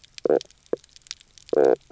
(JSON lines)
{"label": "biophony, knock croak", "recorder": "SoundTrap 300"}